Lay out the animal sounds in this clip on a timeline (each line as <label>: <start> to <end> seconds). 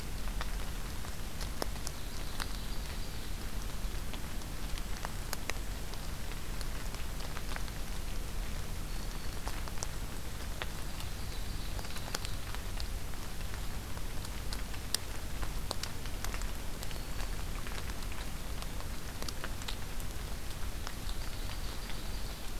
Ovenbird (Seiurus aurocapilla): 1.7 to 3.3 seconds
Black-throated Green Warbler (Setophaga virens): 8.5 to 9.6 seconds
Ovenbird (Seiurus aurocapilla): 10.8 to 12.5 seconds
Black-throated Green Warbler (Setophaga virens): 16.5 to 17.5 seconds
Ovenbird (Seiurus aurocapilla): 20.8 to 22.6 seconds